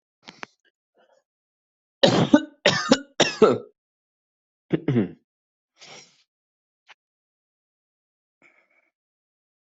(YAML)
expert_labels:
- quality: good
  cough_type: dry
  dyspnea: false
  wheezing: false
  stridor: false
  choking: false
  congestion: true
  nothing: false
  diagnosis: upper respiratory tract infection
  severity: mild
age: 27
gender: male
respiratory_condition: false
fever_muscle_pain: false
status: COVID-19